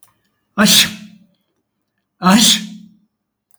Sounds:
Sneeze